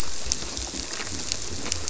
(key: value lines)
label: biophony
recorder: SoundTrap 300